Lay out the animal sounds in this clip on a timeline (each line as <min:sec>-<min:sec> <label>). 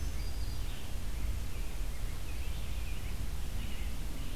0:00.0-0:00.9 Black-throated Green Warbler (Setophaga virens)
0:00.5-0:03.9 American Robin (Turdus migratorius)